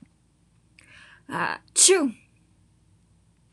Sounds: Sneeze